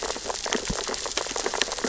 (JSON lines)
{"label": "biophony, sea urchins (Echinidae)", "recorder": "SoundTrap 600 or HydroMoth"}